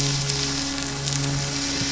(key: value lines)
label: anthrophony, boat engine
recorder: SoundTrap 500